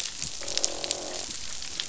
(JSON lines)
{"label": "biophony, croak", "recorder": "SoundTrap 500"}